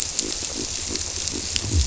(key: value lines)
label: biophony
recorder: SoundTrap 300